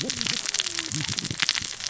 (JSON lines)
{"label": "biophony, cascading saw", "recorder": "SoundTrap 600 or HydroMoth"}